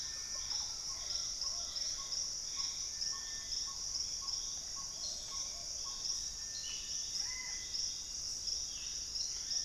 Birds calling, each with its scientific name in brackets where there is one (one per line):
Plumbeous Pigeon (Patagioenas plumbea)
Russet-backed Oropendola (Psarocolius angustifrons)
Collared Trogon (Trogon collaris)
Gray Antbird (Cercomacra cinerascens)
Ringed Antpipit (Corythopis torquatus)
Squirrel Cuckoo (Piaya cayana)
Thrush-like Wren (Campylorhynchus turdinus)